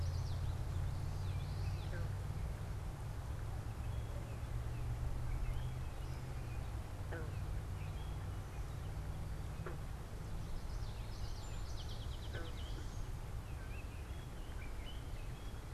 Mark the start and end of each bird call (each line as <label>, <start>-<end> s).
Common Yellowthroat (Geothlypis trichas), 0.0-2.0 s
Gray Catbird (Dumetella carolinensis), 0.0-15.7 s
Common Yellowthroat (Geothlypis trichas), 10.3-12.1 s
Song Sparrow (Melospiza melodia), 11.1-13.3 s